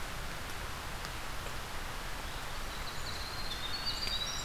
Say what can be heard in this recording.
Winter Wren